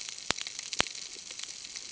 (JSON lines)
{"label": "ambient", "recorder": "HydroMoth"}